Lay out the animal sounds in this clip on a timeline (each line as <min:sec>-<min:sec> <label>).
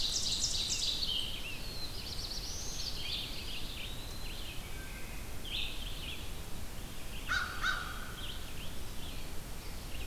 0:00.0-0:01.0 Ovenbird (Seiurus aurocapilla)
0:00.0-0:10.1 Red-eyed Vireo (Vireo olivaceus)
0:00.5-0:02.6 Rose-breasted Grosbeak (Pheucticus ludovicianus)
0:01.5-0:03.0 Black-throated Blue Warbler (Setophaga caerulescens)
0:03.2-0:04.6 Eastern Wood-Pewee (Contopus virens)
0:04.6-0:05.4 Wood Thrush (Hylocichla mustelina)
0:07.2-0:08.0 American Crow (Corvus brachyrhynchos)
0:07.2-0:08.3 Eastern Wood-Pewee (Contopus virens)
0:09.5-0:10.1 Black-throated Green Warbler (Setophaga virens)